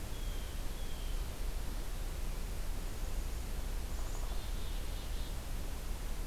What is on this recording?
Blue Jay, Downy Woodpecker, Black-capped Chickadee